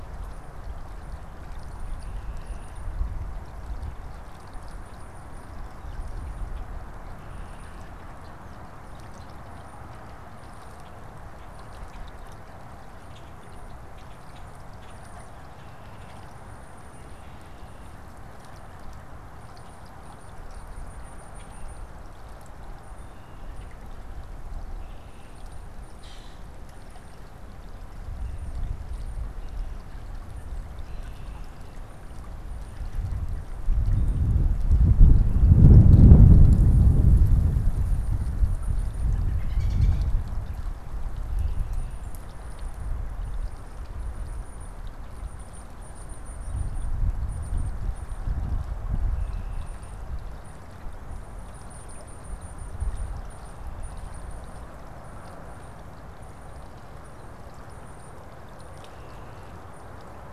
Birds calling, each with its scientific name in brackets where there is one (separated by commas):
Common Grackle (Quiscalus quiscula), American Robin (Turdus migratorius), Tufted Titmouse (Baeolophus bicolor)